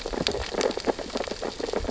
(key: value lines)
label: biophony, sea urchins (Echinidae)
recorder: SoundTrap 600 or HydroMoth